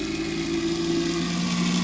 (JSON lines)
{"label": "anthrophony, boat engine", "recorder": "SoundTrap 500"}